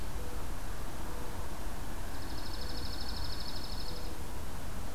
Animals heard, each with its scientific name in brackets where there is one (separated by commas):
Dark-eyed Junco (Junco hyemalis), Mourning Dove (Zenaida macroura)